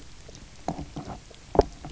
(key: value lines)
label: biophony, knock croak
recorder: SoundTrap 300